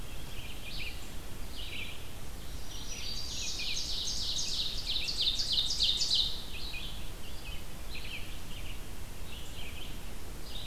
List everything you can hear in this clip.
Red-eyed Vireo, Black-throated Green Warbler, Ovenbird